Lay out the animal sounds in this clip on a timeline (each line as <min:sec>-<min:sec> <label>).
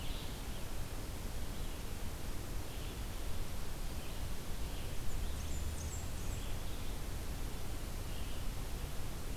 0:00.0-0:09.4 Red-eyed Vireo (Vireo olivaceus)
0:04.9-0:06.7 Blackburnian Warbler (Setophaga fusca)